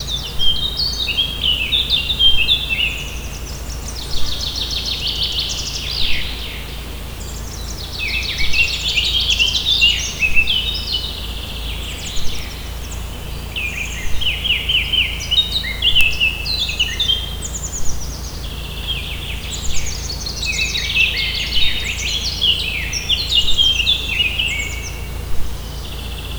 What animal is singing?
bird